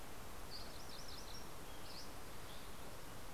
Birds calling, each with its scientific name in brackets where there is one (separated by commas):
MacGillivray's Warbler (Geothlypis tolmiei), Dusky Flycatcher (Empidonax oberholseri)